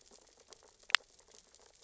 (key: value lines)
label: biophony, sea urchins (Echinidae)
recorder: SoundTrap 600 or HydroMoth